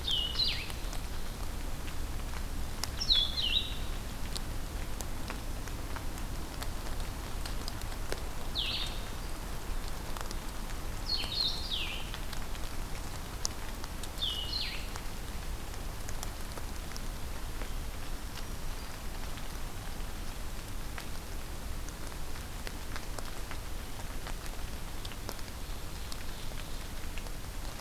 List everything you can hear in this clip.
Blue-headed Vireo, Black-throated Green Warbler